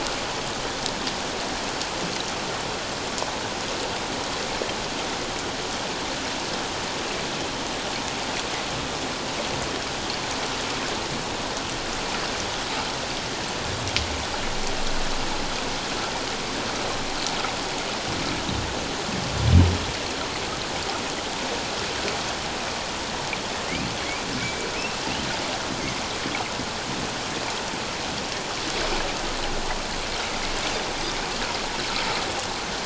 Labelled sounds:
24.8	25.0	humpback whale, 2.5 to 2.8 kHz

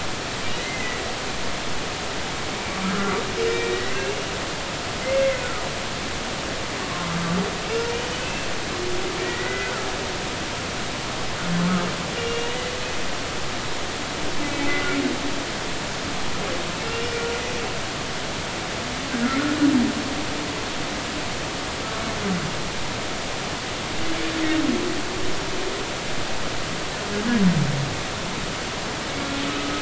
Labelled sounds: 0.6	1.0	humpback whale, 1.9 to 2.1 kHz
3.5	4.3	humpback whale, 1.8 to 2.9 kHz
7.9	8.5	humpback whale, 2.5 to 3.0 kHz
9.2	9.7	humpback whale, 1.4 to 2.0 kHz
12.1	12.6	humpback whale, 2.7 to 2.9 kHz
14.7	15.0	humpback whale, 1.3 to 1.5 kHz
16.9	17.1	humpback whale, 2.7 to 2.9 kHz
29.5	29.8	humpback whale, 1.2 to 1.3 kHz

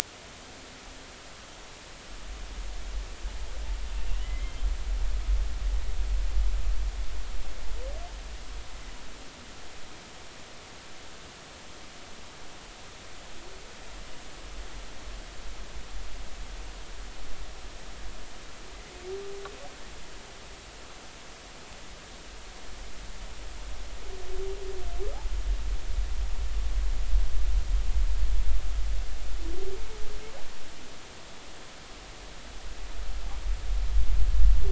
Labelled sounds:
4.2	4.6	humpback whale, 2.0 to 2.2 kHz

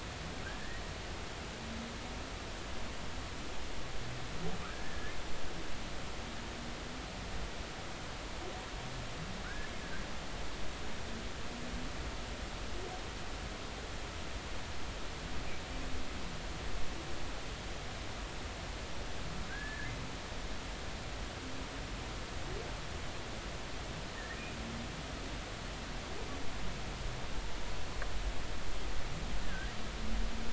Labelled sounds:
0.4	0.8	humpback whale, 1.3 to 2.0 kHz
4.6	5.2	humpback whale, 1.1 to 1.8 kHz
9.4	9.7	humpback whale, 1.4 to 1.8 kHz
19.5	19.9	humpback whale, 1.5 to 1.8 kHz
29.5	29.7	humpback whale, 1.5 to 1.8 kHz

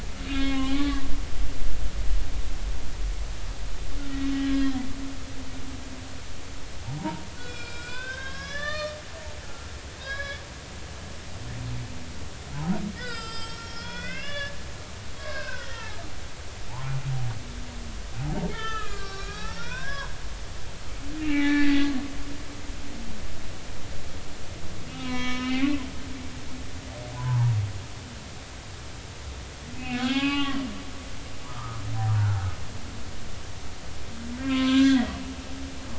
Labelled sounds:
0.3	1.0	humpback whale, 0.80 to 3.9 kHz
4.3	4.7	humpback whale, 1.6 to 1.7 kHz
7.0	9.0	humpback whale, 0.80 to 6.1 kHz
9.4	10.4	humpback whale, 1.0 to 5.1 kHz
13.0	14.6	humpback whale, 1.1 to 7.9 kHz
15.2	16.0	humpback whale, 0.80 to 2.7 kHz
16.7	17.0	humpback whale, 0.80 to 1.1 kHz
18.2	20.6	humpback whale, 0.80 to 4.5 kHz
21.2	21.9	humpback whale, 0.80 to 4.7 kHz
24.9	25.9	humpback whale, 0.96 to 5.4 kHz
27.1	27.5	humpback whale, 0.80 to 1.1 kHz
29.8	30.6	humpback whale, 0.80 to 4.9 kHz
31.5	31.8	humpback whale, 1.1 to 1.4 kHz
33.2	35.2	humpback whale, 0.99 to 6.1 kHz

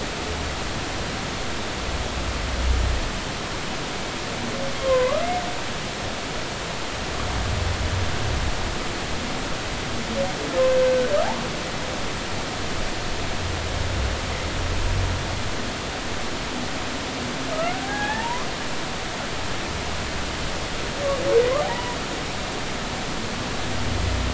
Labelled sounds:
4.8	5.3	humpback whale, 0.96 to 3.3 kHz
10.9	11.1	humpback whale, 1.4 to 1.6 kHz
17.5	18.5	humpback whale, 0.80 to 1.9 kHz
21.6	22.0	humpback whale, 0.80 to 1.0 kHz

